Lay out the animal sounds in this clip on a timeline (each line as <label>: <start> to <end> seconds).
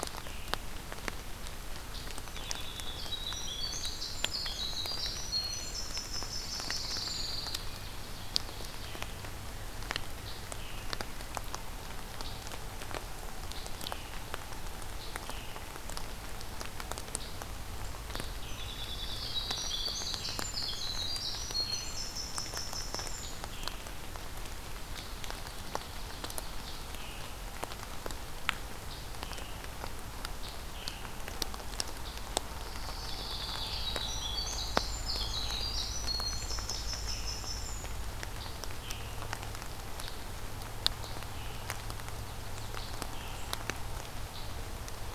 Scarlet Tanager (Piranga olivacea): 0.0 to 2.8 seconds
Winter Wren (Troglodytes hiemalis): 2.0 to 7.9 seconds
Pine Warbler (Setophaga pinus): 6.1 to 8.0 seconds
Ovenbird (Seiurus aurocapilla): 7.6 to 9.1 seconds
Scarlet Tanager (Piranga olivacea): 10.2 to 45.1 seconds
Winter Wren (Troglodytes hiemalis): 18.0 to 23.7 seconds
Pine Warbler (Setophaga pinus): 18.6 to 20.1 seconds
Ovenbird (Seiurus aurocapilla): 24.8 to 27.1 seconds
Winter Wren (Troglodytes hiemalis): 32.3 to 38.5 seconds
Pine Warbler (Setophaga pinus): 32.5 to 34.3 seconds
Ovenbird (Seiurus aurocapilla): 41.7 to 43.1 seconds